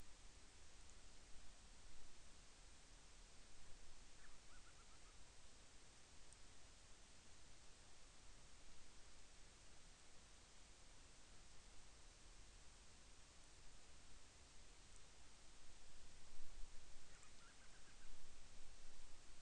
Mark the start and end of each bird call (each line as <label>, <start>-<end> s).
Band-rumped Storm-Petrel (Hydrobates castro), 4.1-5.3 s
Band-rumped Storm-Petrel (Hydrobates castro), 17.0-18.2 s